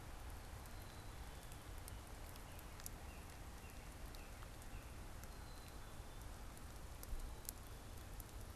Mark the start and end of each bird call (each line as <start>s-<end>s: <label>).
0.5s-1.7s: Black-capped Chickadee (Poecile atricapillus)
2.3s-5.2s: Northern Cardinal (Cardinalis cardinalis)
5.2s-6.3s: Black-capped Chickadee (Poecile atricapillus)